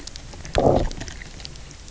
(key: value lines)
label: biophony, low growl
recorder: SoundTrap 300